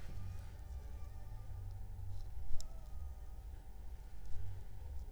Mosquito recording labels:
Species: Anopheles funestus s.s.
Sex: female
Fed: unfed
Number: one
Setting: cup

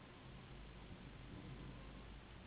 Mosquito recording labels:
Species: Anopheles gambiae s.s.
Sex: female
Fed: unfed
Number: one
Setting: insect culture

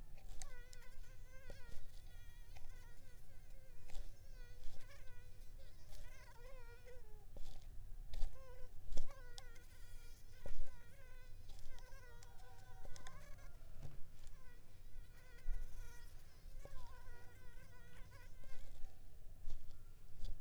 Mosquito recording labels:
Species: Culex pipiens complex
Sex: female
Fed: unfed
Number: one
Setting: cup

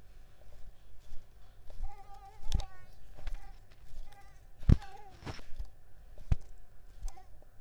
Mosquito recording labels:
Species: Mansonia africanus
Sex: female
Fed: unfed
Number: one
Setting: cup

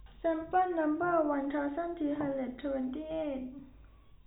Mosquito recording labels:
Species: no mosquito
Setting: cup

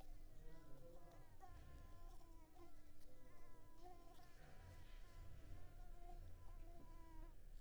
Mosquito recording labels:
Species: Anopheles coustani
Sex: female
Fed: unfed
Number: one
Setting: cup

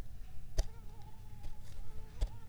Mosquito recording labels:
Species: Anopheles arabiensis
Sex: female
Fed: unfed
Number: one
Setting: cup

